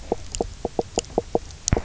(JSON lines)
{"label": "biophony, knock croak", "recorder": "SoundTrap 300"}